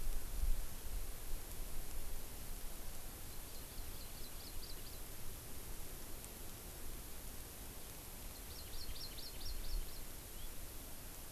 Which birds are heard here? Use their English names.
Hawaii Amakihi, House Finch